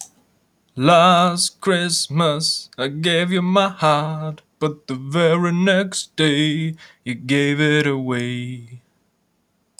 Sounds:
Sigh